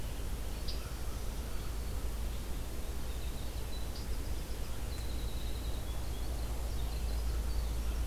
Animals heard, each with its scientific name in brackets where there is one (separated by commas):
Winter Wren (Troglodytes hiemalis), Red-eyed Vireo (Vireo olivaceus), American Crow (Corvus brachyrhynchos), Black-throated Green Warbler (Setophaga virens)